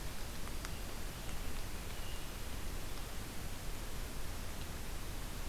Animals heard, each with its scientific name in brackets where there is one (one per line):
Hermit Thrush (Catharus guttatus)